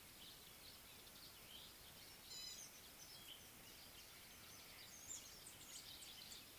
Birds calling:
Gray-backed Camaroptera (Camaroptera brevicaudata)

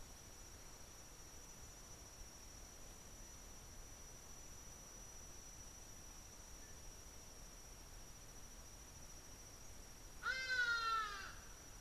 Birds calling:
Hadada Ibis (Bostrychia hagedash)

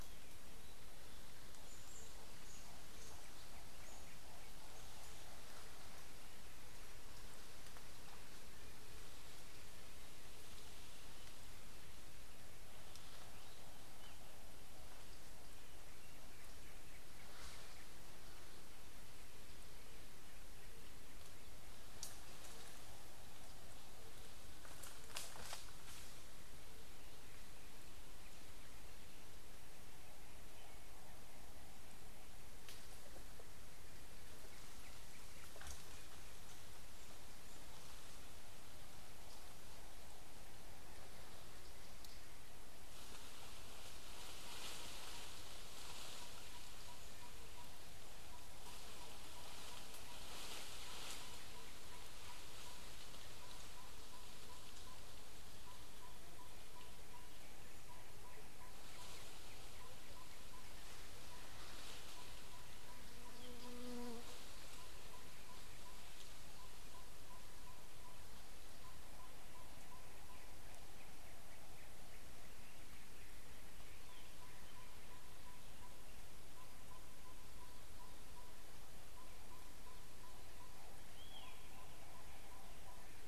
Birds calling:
Waller's Starling (Onychognathus walleri), Yellow-rumped Tinkerbird (Pogoniulus bilineatus)

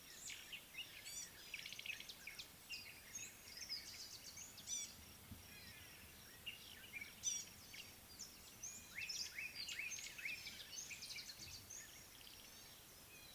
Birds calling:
Gray-backed Camaroptera (Camaroptera brevicaudata), Slate-colored Boubou (Laniarius funebris), White-bellied Go-away-bird (Corythaixoides leucogaster)

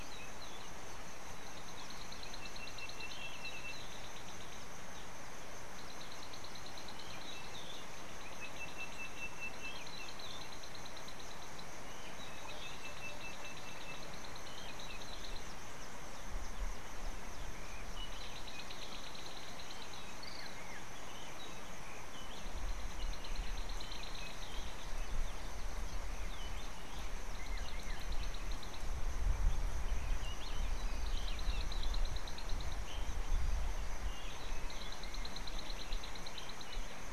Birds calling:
African Bare-eyed Thrush (Turdus tephronotus), Sulphur-breasted Bushshrike (Telophorus sulfureopectus)

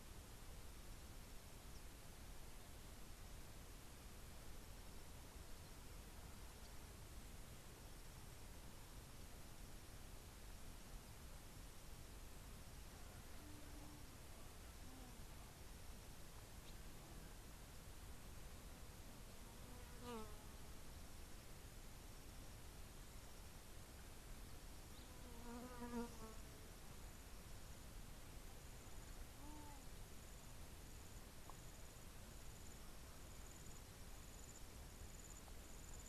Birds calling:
Egyptian Goose (Alopochen aegyptiaca)

